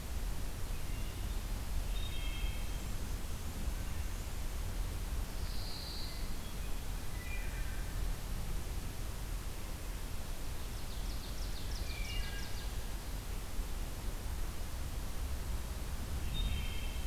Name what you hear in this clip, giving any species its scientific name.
Hylocichla mustelina, Setophaga pinus, Seiurus aurocapilla